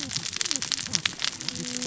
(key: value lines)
label: biophony, cascading saw
recorder: SoundTrap 600 or HydroMoth